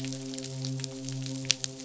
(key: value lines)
label: biophony, midshipman
recorder: SoundTrap 500